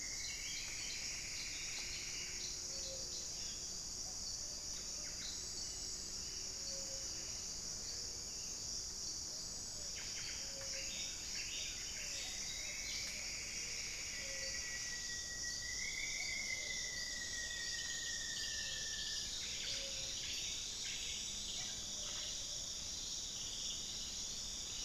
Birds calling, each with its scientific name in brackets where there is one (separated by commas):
Thrush-like Wren (Campylorhynchus turdinus), Plumbeous Antbird (Myrmelastes hyperythrus), Rufous-fronted Antthrush (Formicarius rufifrons), Gray-fronted Dove (Leptotila rufaxilla)